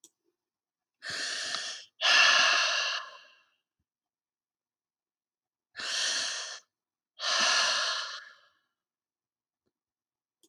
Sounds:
Sigh